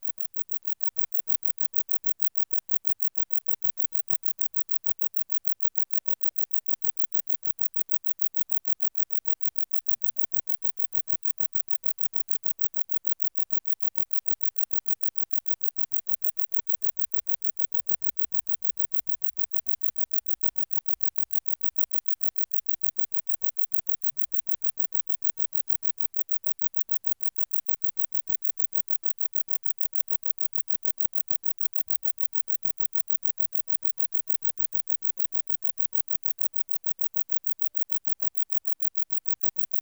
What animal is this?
Metrioptera brachyptera, an orthopteran